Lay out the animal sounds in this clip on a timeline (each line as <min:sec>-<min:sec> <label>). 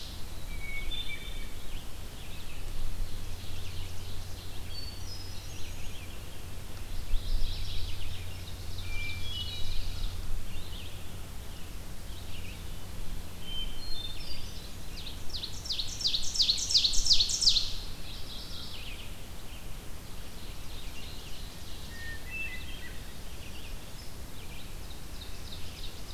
0:00.4-0:01.7 Hermit Thrush (Catharus guttatus)
0:00.7-0:26.1 Red-eyed Vireo (Vireo olivaceus)
0:02.5-0:04.6 Ovenbird (Seiurus aurocapilla)
0:04.5-0:06.1 Hermit Thrush (Catharus guttatus)
0:06.8-0:08.4 Mourning Warbler (Geothlypis philadelphia)
0:08.3-0:10.2 Ovenbird (Seiurus aurocapilla)
0:08.7-0:10.4 Hermit Thrush (Catharus guttatus)
0:13.3-0:14.9 Hermit Thrush (Catharus guttatus)
0:14.7-0:18.1 Ovenbird (Seiurus aurocapilla)
0:18.0-0:19.2 Mourning Warbler (Geothlypis philadelphia)
0:19.7-0:22.5 Ovenbird (Seiurus aurocapilla)
0:21.8-0:23.2 Hermit Thrush (Catharus guttatus)
0:24.3-0:26.1 Ovenbird (Seiurus aurocapilla)